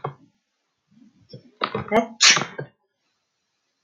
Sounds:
Sneeze